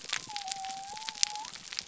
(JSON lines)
{"label": "biophony", "recorder": "SoundTrap 300"}